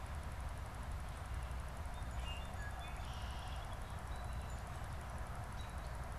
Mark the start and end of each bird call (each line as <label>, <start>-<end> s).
Song Sparrow (Melospiza melodia), 1.6-5.3 s
Red-winged Blackbird (Agelaius phoeniceus), 2.6-3.9 s
American Robin (Turdus migratorius), 5.4-6.0 s